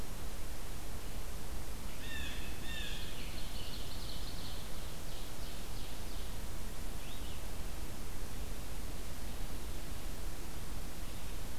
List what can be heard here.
Blue Jay, Ovenbird, Red-eyed Vireo